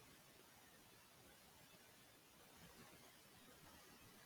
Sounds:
Cough